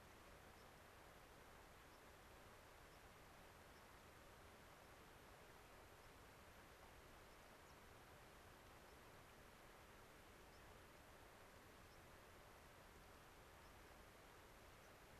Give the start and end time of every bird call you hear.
[0.50, 0.70] White-crowned Sparrow (Zonotrichia leucophrys)
[1.90, 2.00] White-crowned Sparrow (Zonotrichia leucophrys)
[2.80, 3.00] White-crowned Sparrow (Zonotrichia leucophrys)
[3.70, 3.80] White-crowned Sparrow (Zonotrichia leucophrys)
[4.80, 4.90] White-crowned Sparrow (Zonotrichia leucophrys)
[6.00, 6.10] White-crowned Sparrow (Zonotrichia leucophrys)
[7.30, 7.80] White-crowned Sparrow (Zonotrichia leucophrys)
[8.80, 9.00] White-crowned Sparrow (Zonotrichia leucophrys)
[10.50, 10.60] White-crowned Sparrow (Zonotrichia leucophrys)
[10.90, 11.00] White-crowned Sparrow (Zonotrichia leucophrys)
[11.90, 12.00] White-crowned Sparrow (Zonotrichia leucophrys)
[13.60, 13.70] White-crowned Sparrow (Zonotrichia leucophrys)
[14.80, 14.90] White-crowned Sparrow (Zonotrichia leucophrys)

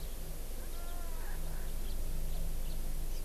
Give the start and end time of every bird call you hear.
[0.00, 0.10] House Finch (Haemorhous mexicanus)
[0.70, 0.80] House Finch (Haemorhous mexicanus)
[1.80, 2.00] House Finch (Haemorhous mexicanus)
[2.30, 2.80] House Finch (Haemorhous mexicanus)

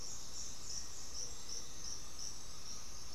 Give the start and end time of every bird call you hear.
[0.00, 3.15] Gray-fronted Dove (Leptotila rufaxilla)
[0.00, 3.15] White-winged Becard (Pachyramphus polychopterus)
[0.56, 1.97] Black-faced Antthrush (Formicarius analis)

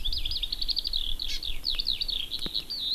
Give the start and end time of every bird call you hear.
[0.00, 2.94] Eurasian Skylark (Alauda arvensis)
[1.28, 1.38] Hawaii Amakihi (Chlorodrepanis virens)

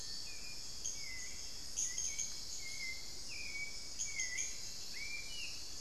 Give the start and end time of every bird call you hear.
[0.00, 0.70] Long-billed Woodcreeper (Nasica longirostris)
[0.00, 5.81] Little Tinamou (Crypturellus soui)
[0.00, 5.81] unidentified bird
[0.10, 5.81] Hauxwell's Thrush (Turdus hauxwelli)

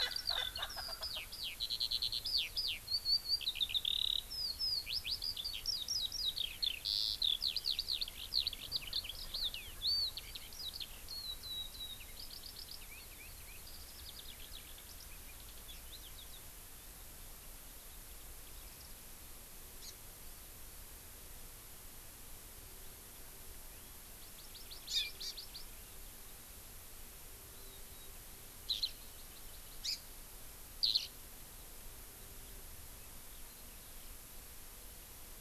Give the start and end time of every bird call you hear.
[0.00, 1.21] Erckel's Francolin (Pternistis erckelii)
[0.00, 16.41] Eurasian Skylark (Alauda arvensis)
[19.81, 19.91] Hawaii Amakihi (Chlorodrepanis virens)
[24.11, 25.71] Hawaii Amakihi (Chlorodrepanis virens)
[27.51, 28.11] Warbling White-eye (Zosterops japonicus)
[28.61, 28.91] Eurasian Skylark (Alauda arvensis)
[29.01, 30.01] Hawaii Amakihi (Chlorodrepanis virens)
[30.81, 31.11] Eurasian Skylark (Alauda arvensis)

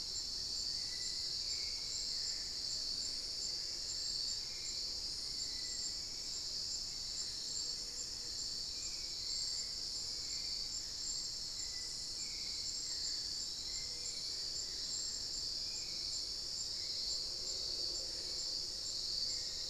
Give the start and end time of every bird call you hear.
[0.00, 2.08] unidentified bird
[0.00, 19.69] Hauxwell's Thrush (Turdus hauxwelli)

